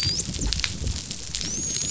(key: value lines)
label: biophony, dolphin
recorder: SoundTrap 500